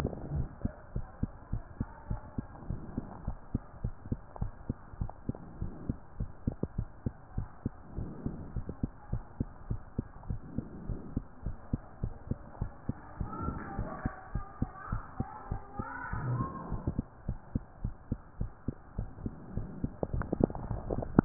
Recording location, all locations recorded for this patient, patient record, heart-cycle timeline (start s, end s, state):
mitral valve (MV)
aortic valve (AV)+pulmonary valve (PV)+tricuspid valve (TV)+mitral valve (MV)
#Age: Child
#Sex: Female
#Height: nan
#Weight: nan
#Pregnancy status: False
#Murmur: Absent
#Murmur locations: nan
#Most audible location: nan
#Systolic murmur timing: nan
#Systolic murmur shape: nan
#Systolic murmur grading: nan
#Systolic murmur pitch: nan
#Systolic murmur quality: nan
#Diastolic murmur timing: nan
#Diastolic murmur shape: nan
#Diastolic murmur grading: nan
#Diastolic murmur pitch: nan
#Diastolic murmur quality: nan
#Outcome: Normal
#Campaign: 2015 screening campaign
0.00	0.84	unannotated
0.84	0.92	diastole
0.92	1.06	S1
1.06	1.20	systole
1.20	1.34	S2
1.34	1.50	diastole
1.50	1.64	S1
1.64	1.78	systole
1.78	1.88	S2
1.88	2.08	diastole
2.08	2.20	S1
2.20	2.34	systole
2.34	2.48	S2
2.48	2.68	diastole
2.68	2.82	S1
2.82	2.94	systole
2.94	3.04	S2
3.04	3.24	diastole
3.24	3.36	S1
3.36	3.50	systole
3.50	3.62	S2
3.62	3.78	diastole
3.78	3.92	S1
3.92	4.10	systole
4.10	4.22	S2
4.22	4.40	diastole
4.40	4.52	S1
4.52	4.66	systole
4.66	4.80	S2
4.80	4.98	diastole
4.98	5.12	S1
5.12	5.26	systole
5.26	5.38	S2
5.38	5.58	diastole
5.58	5.72	S1
5.72	5.86	systole
5.86	6.00	S2
6.00	6.18	diastole
6.18	6.30	S1
6.30	6.44	systole
6.44	6.58	S2
6.58	6.75	diastole
6.75	6.86	S1
6.86	7.02	systole
7.02	7.16	S2
7.16	7.36	diastole
7.36	7.48	S1
7.48	7.62	systole
7.62	7.74	S2
7.74	7.96	diastole
7.96	8.10	S1
8.10	8.24	systole
8.24	8.38	S2
8.38	8.54	diastole
8.54	8.68	S1
8.68	8.82	systole
8.82	8.92	S2
8.92	9.12	diastole
9.12	9.24	S1
9.24	9.38	systole
9.38	9.48	S2
9.48	9.68	diastole
9.68	9.82	S1
9.82	9.96	systole
9.96	10.08	S2
10.08	10.28	diastole
10.28	10.40	S1
10.40	10.56	systole
10.56	10.66	S2
10.66	10.84	diastole
10.84	10.98	S1
10.98	11.14	systole
11.14	11.24	S2
11.24	11.44	diastole
11.44	11.56	S1
11.56	11.72	systole
11.72	11.84	S2
11.84	12.02	diastole
12.02	12.14	S1
12.14	12.30	systole
12.30	12.40	S2
12.40	12.60	diastole
12.60	12.72	S1
12.72	12.88	systole
12.88	12.98	S2
12.98	13.18	diastole
13.18	13.32	S1
13.32	13.42	systole
13.42	13.58	S2
13.58	13.76	diastole
13.76	13.88	S1
13.88	14.04	systole
14.04	14.14	S2
14.14	14.34	diastole
14.34	14.46	S1
14.46	14.60	systole
14.60	14.72	S2
14.72	14.90	diastole
14.90	15.02	S1
15.02	15.18	systole
15.18	15.28	S2
15.28	15.50	diastole
15.50	15.64	S1
15.64	15.78	systole
15.78	15.86	S2
15.86	16.11	diastole
16.11	16.20	S1
16.20	16.38	systole
16.38	16.46	S2
16.46	16.70	diastole
16.70	16.80	S1
16.80	16.98	systole
16.98	17.04	S2
17.04	17.28	diastole
17.28	17.40	S1
17.40	17.54	systole
17.54	17.64	S2
17.64	17.80	diastole
17.80	17.92	S1
17.92	18.08	systole
18.08	18.20	S2
18.20	18.36	diastole
18.36	18.52	S1
18.52	18.64	systole
18.64	18.78	S2
18.78	18.98	diastole
18.98	19.10	S1
19.10	19.24	systole
19.24	19.36	S2
19.36	19.56	diastole
19.56	19.68	S1
19.68	21.25	unannotated